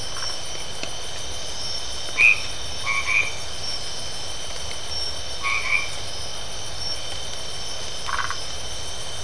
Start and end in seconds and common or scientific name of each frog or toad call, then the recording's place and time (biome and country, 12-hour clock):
0.0	0.4	Phyllomedusa distincta
1.8	3.4	white-edged tree frog
5.3	6.0	white-edged tree frog
7.9	8.6	Phyllomedusa distincta
Atlantic Forest, Brazil, 10:30pm